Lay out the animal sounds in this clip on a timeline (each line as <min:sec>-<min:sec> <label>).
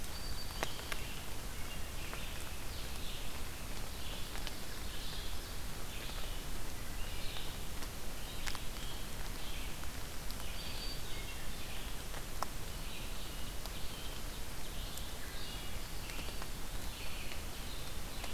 0:00.0-0:01.0 Black-throated Green Warbler (Setophaga virens)
0:00.0-0:01.1 Red-eyed Vireo (Vireo olivaceus)
0:01.6-0:18.3 Red-eyed Vireo (Vireo olivaceus)
0:10.1-0:11.3 Black-throated Green Warbler (Setophaga virens)